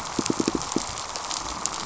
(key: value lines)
label: biophony, pulse
recorder: SoundTrap 500